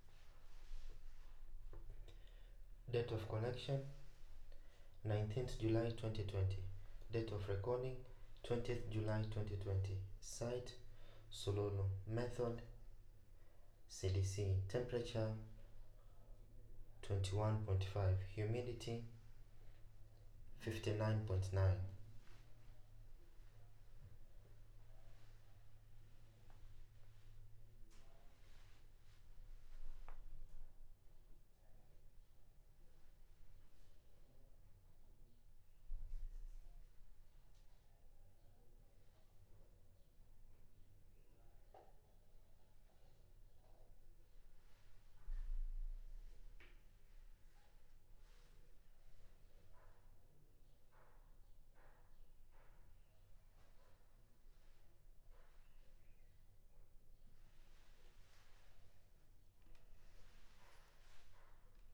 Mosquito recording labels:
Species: no mosquito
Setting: cup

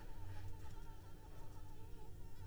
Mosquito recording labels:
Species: Anopheles arabiensis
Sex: female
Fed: unfed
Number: one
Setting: cup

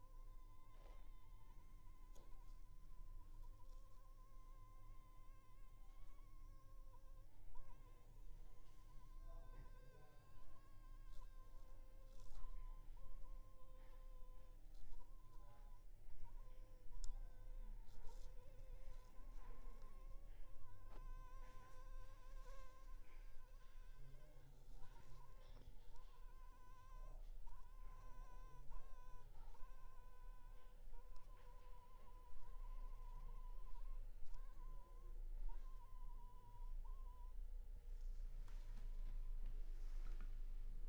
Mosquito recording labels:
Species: Anopheles funestus s.s.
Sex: female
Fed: unfed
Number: one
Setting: cup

